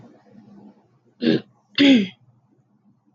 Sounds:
Throat clearing